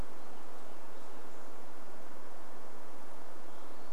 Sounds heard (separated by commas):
unidentified sound